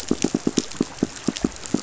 {"label": "biophony, pulse", "recorder": "SoundTrap 500"}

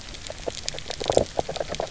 {"label": "biophony, grazing", "recorder": "SoundTrap 300"}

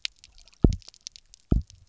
{"label": "biophony, double pulse", "recorder": "SoundTrap 300"}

